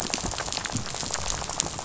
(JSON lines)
{"label": "biophony, rattle", "recorder": "SoundTrap 500"}